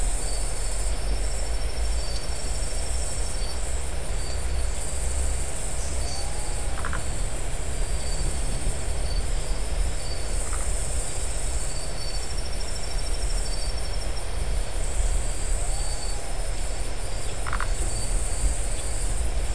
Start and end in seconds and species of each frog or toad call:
6.7	7.1	Phyllomedusa distincta
10.4	10.8	Phyllomedusa distincta
17.4	17.7	Phyllomedusa distincta
Atlantic Forest, Brazil, 1am

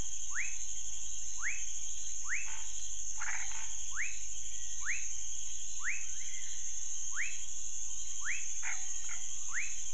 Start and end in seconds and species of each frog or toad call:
0.0	9.9	rufous frog
2.4	2.7	Scinax fuscovarius
3.2	3.5	Chaco tree frog
3.5	3.7	Scinax fuscovarius
8.6	9.3	Scinax fuscovarius
Cerrado, Brazil, 10pm

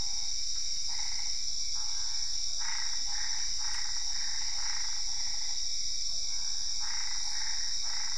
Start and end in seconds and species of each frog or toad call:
0.0	8.1	Boana albopunctata
2.4	8.1	Physalaemus cuvieri
Cerrado, Brazil, ~10pm

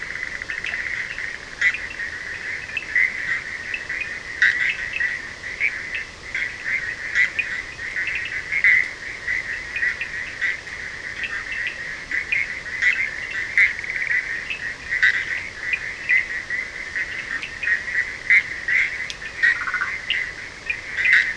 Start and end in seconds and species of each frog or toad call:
0.0	21.3	Bischoff's tree frog
0.0	21.3	Cochran's lime tree frog
11.9	12.6	Leptodactylus latrans
16.9	17.8	Leptodactylus latrans
19.4	20.1	Burmeister's tree frog
Atlantic Forest, Brazil, 4:30am

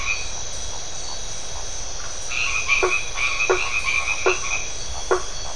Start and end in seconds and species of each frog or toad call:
1.9	2.2	Phyllomedusa distincta
2.3	4.9	white-edged tree frog
2.7	5.5	blacksmith tree frog
Atlantic Forest, Brazil, 8:30pm

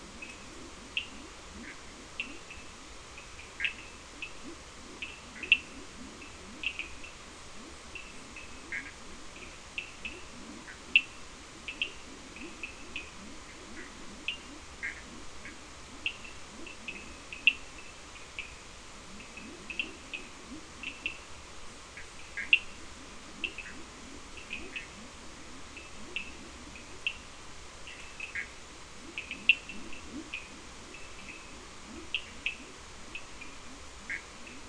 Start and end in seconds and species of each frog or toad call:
0.0	34.6	Leptodactylus latrans
0.0	34.6	Cochran's lime tree frog
3.4	3.9	Bischoff's tree frog
8.6	8.9	Bischoff's tree frog
14.7	15.1	Bischoff's tree frog
22.2	22.6	Bischoff's tree frog
28.2	28.6	Bischoff's tree frog
33.9	34.4	Bischoff's tree frog
Atlantic Forest, Brazil, 4am

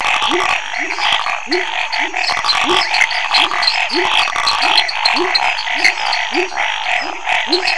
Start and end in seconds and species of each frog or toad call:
0.0	5.5	waxy monkey tree frog
0.0	7.7	Chaco tree frog
0.0	7.7	dwarf tree frog
0.0	7.7	Scinax fuscovarius
0.2	7.7	pepper frog
2.2	2.9	lesser tree frog
2.8	3.0	rufous frog
Cerrado, Brazil, ~8pm

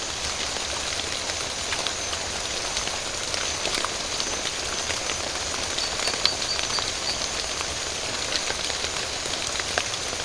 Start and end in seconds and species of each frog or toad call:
5.7	7.3	marbled tropical bullfrog
Atlantic Forest, Brazil, 3:30am

